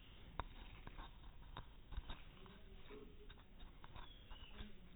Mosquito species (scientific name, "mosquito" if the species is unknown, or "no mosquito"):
no mosquito